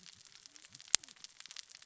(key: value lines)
label: biophony, cascading saw
recorder: SoundTrap 600 or HydroMoth